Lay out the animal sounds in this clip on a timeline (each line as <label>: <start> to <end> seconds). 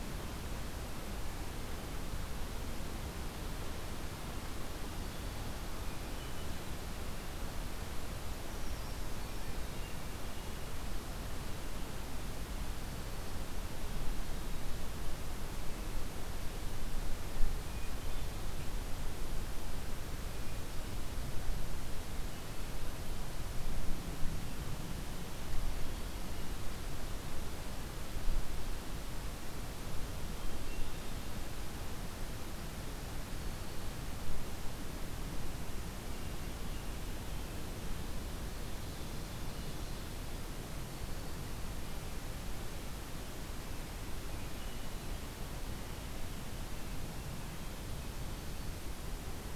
Hermit Thrush (Catharus guttatus): 5.7 to 6.9 seconds
Brown Creeper (Certhia americana): 8.0 to 9.5 seconds
Hermit Thrush (Catharus guttatus): 9.1 to 10.8 seconds
Hermit Thrush (Catharus guttatus): 17.6 to 18.6 seconds
Hermit Thrush (Catharus guttatus): 25.4 to 26.6 seconds
Black-capped Chickadee (Poecile atricapillus): 30.2 to 31.5 seconds
Ovenbird (Seiurus aurocapilla): 37.9 to 40.0 seconds
Hermit Thrush (Catharus guttatus): 44.2 to 45.3 seconds